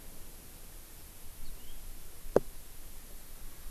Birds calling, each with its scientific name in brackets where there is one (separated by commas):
Yellow-fronted Canary (Crithagra mozambica)